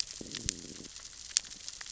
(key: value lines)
label: biophony, growl
recorder: SoundTrap 600 or HydroMoth